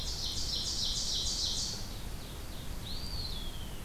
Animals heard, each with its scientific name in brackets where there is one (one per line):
Eastern Wood-Pewee (Contopus virens)
Ovenbird (Seiurus aurocapilla)